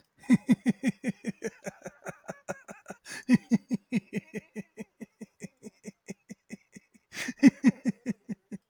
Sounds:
Laughter